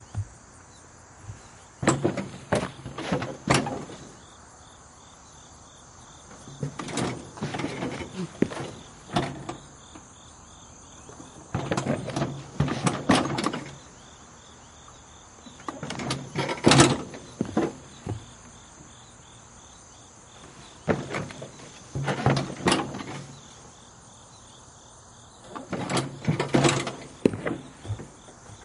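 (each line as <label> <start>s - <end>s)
A driver repeatedly gets on and off the mower, alternating between sitting and standing. 0.1s - 28.6s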